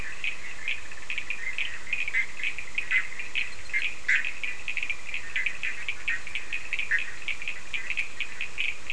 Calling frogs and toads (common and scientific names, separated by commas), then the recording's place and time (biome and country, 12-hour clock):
Cochran's lime tree frog (Sphaenorhynchus surdus), Bischoff's tree frog (Boana bischoffi)
Atlantic Forest, Brazil, 3:15am